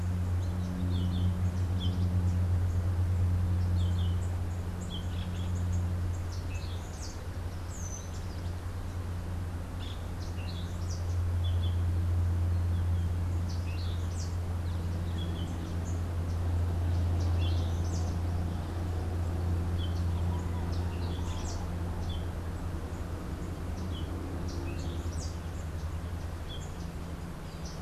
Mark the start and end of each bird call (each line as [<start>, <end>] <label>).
[0.00, 7.02] Yellow-throated Euphonia (Euphonia hirundinacea)
[6.22, 11.22] Orange-billed Nightingale-Thrush (Catharus aurantiirostris)
[11.32, 27.82] Yellow-throated Euphonia (Euphonia hirundinacea)
[13.32, 25.42] Orange-billed Nightingale-Thrush (Catharus aurantiirostris)